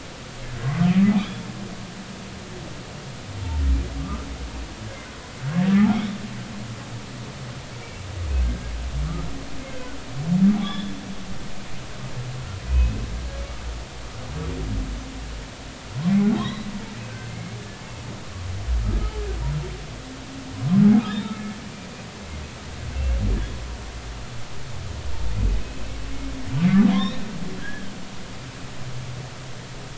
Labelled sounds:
0.6	0.9	humpback whale, 1.0 to 1.2 kHz
1.1	1.5	humpback whale, 3.0 to 3.7 kHz
4.0	4.3	humpback whale, 1.1 to 1.4 kHz
5.7	6.0	humpback whale, 1.2 to 1.4 kHz
8.3	8.7	humpback whale, 1.5 to 1.7 kHz
9.6	9.9	humpback whale, 2.0 to 2.2 kHz
10.6	11.0	humpback whale, 1.6 to 3.9 kHz
12.7	13.0	humpback whale, 2.4 to 2.6 kHz
16.3	17.6	humpback whale, 2.1 to 4.1 kHz
21.0	21.6	humpback whale, 2.1 to 3.9 kHz
25.6	25.9	humpback whale, 2.5 to 2.7 kHz
26.9	27.2	humpback whale, 3.1 to 4.1 kHz
27.6	27.9	humpback whale, 1.5 to 1.8 kHz

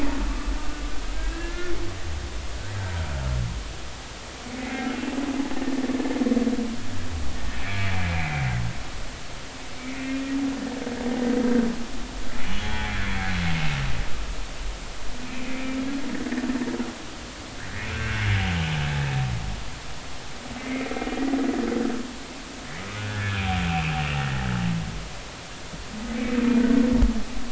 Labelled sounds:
0.3	0.5	humpback whale, 1.1 to 1.3 kHz
1.1	1.7	humpback whale, 1.3 to 1.9 kHz
4.5	5.0	humpback whale, 2.0 to 2.3 kHz
5.5	5.8	humpback whale, 1.8 to 1.9 kHz
7.6	8.4	humpback whale, 2.0 to 2.6 kHz
9.8	10.2	humpback whale, 2.0 to 2.5 kHz
12.5	13.3	humpback whale, 0.80 to 3.4 kHz
15.3	15.8	humpback whale, 2.0 to 2.6 kHz
17.9	18.3	humpback whale, 1.4 to 2.8 kHz
20.6	20.9	humpback whale, 2.0 to 2.4 kHz
23.0	23.9	humpback whale, 1.4 to 2.7 kHz

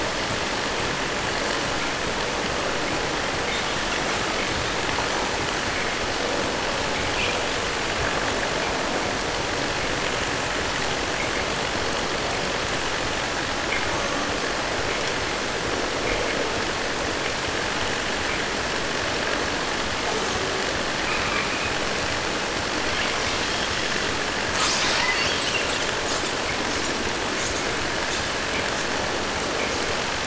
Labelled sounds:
24.4	27.0	killer whale, 0.34 to 8.0 kHz
27.3	27.7	killer whale, 5.4 to 8.0 kHz
28.0	28.9	killer whale, 1.7 to 8.0 kHz
29.3	29.9	killer whale, 1.6 to 7.2 kHz

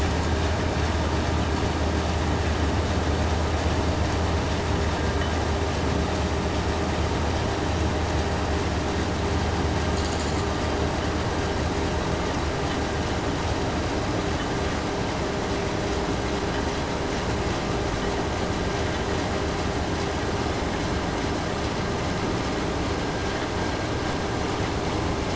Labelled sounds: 9.8	10.5	vessel noise, 2.4 to 8.0 kHz

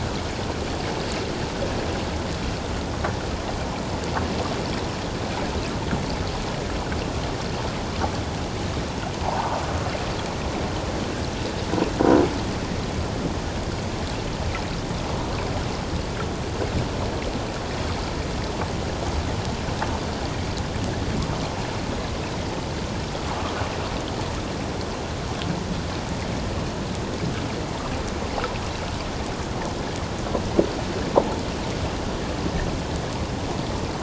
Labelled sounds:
9.2	9.6	water noise, 0.78 to 1.1 kHz

